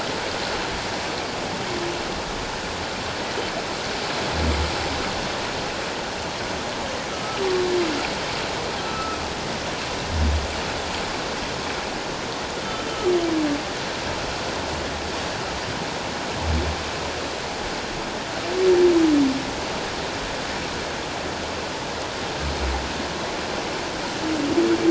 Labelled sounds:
7.1	7.4	humpback whale, 1.2 to 1.4 kHz
8.8	9.2	humpback whale, 1.2 to 1.4 kHz
12.6	12.9	humpback whale, 3.0 to 3.2 kHz

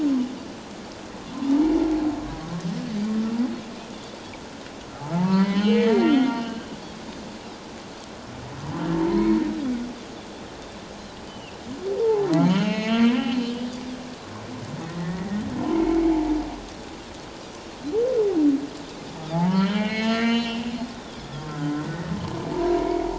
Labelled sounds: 5.1	6.7	humpback whale, 0.84 to 4.3 kHz
8.9	9.4	humpback whale, 0.88 to 1.1 kHz
11.3	11.6	Pacific white-sided dolphin, 2.5 to 3.1 kHz
12.0	13.7	humpback whale, 0.78 to 6.6 kHz
14.9	15.4	humpback whale, 1.7 to 2.0 kHz
19.3	21.8	humpback whale, 0.78 to 6.6 kHz
20.2	20.4	Pacific white-sided dolphin, 2.0 to 2.4 kHz
22.5	23.1	humpback whale, 0.84 to 2.3 kHz

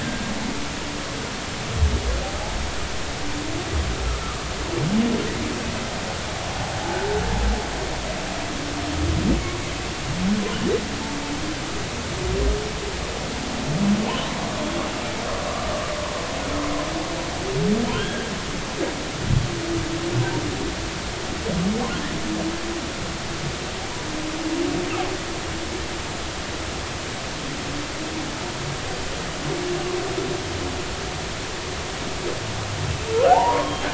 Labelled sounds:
0.0	0.3	humpback whale, 1.5 to 1.6 kHz
15.5	15.9	humpback whale, 1.1 to 1.2 kHz
17.8	18.3	humpback whale, 1.3 to 3.4 kHz
33.1	33.8	humpback whale, 0.80 to 1.5 kHz

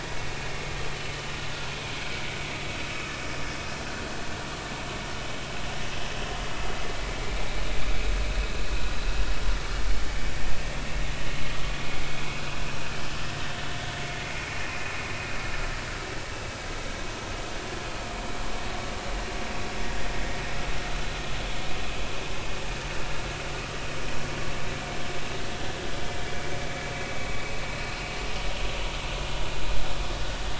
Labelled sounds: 7.3	7.6	vessel noise, 2.2 to 2.4 kHz

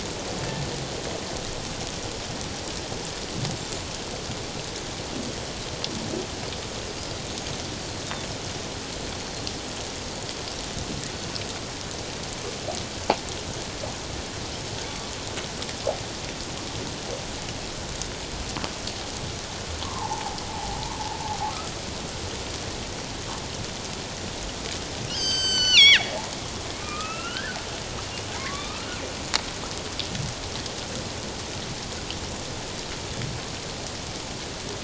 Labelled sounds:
19.8	20.8	killer whale, northern resident, G clan, 0.78 to 1.2 kHz
25.1	26.1	killer whale, northern resident, G clan, 1.3 to 7.9 kHz
26.8	27.6	killer whale, northern resident, G clan, 1.2 to 3.2 kHz
28.3	28.8	killer whale, northern resident, G clan, 0.88 to 1.3 kHz

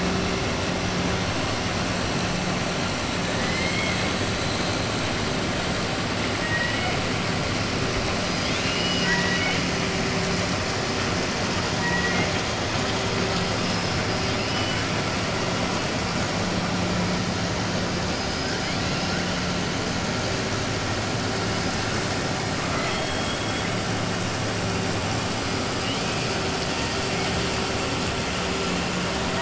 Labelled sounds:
3.3	4.1	killer whale, 1.7 to 5.2 kHz
6.4	7.0	killer whale, 1.4 to 3.0 kHz
8.3	9.6	killer whale, 0.99 to 6.9 kHz
11.7	12.3	killer whale, 0.94 to 2.9 kHz
14.2	14.9	killer whale, 1.5 to 3.5 kHz
22.6	23.7	killer whale, 0.70 to 4.2 kHz

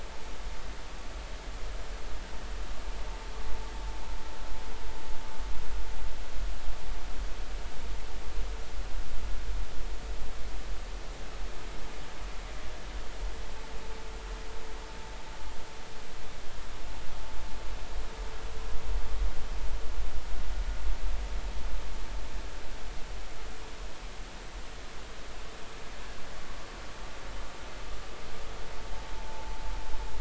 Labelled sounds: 29.2	29.5	vessel noise, 0.80 to 0.93 kHz

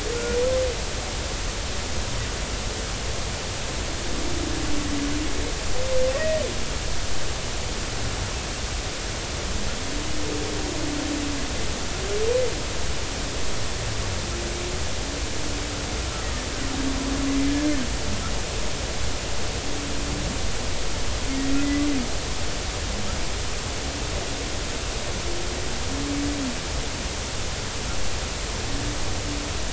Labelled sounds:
0.1	0.4	humpback whale, 1.4 to 1.5 kHz
6.1	6.4	humpback whale, 1.8 to 2.0 kHz
21.6	21.9	humpback whale, 1.9 to 2.1 kHz

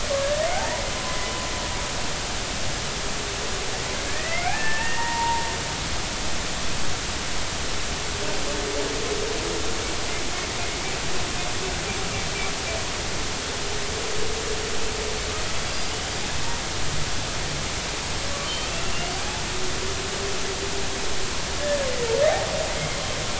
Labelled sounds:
0.1	1.3	humpback whale, 0.80 to 1.8 kHz
4.1	5.4	humpback whale, 0.86 to 2.6 kHz
15.6	15.9	humpback whale, 4.7 to 4.9 kHz
18.4	19.1	humpback whale, 2.7 to 3.2 kHz

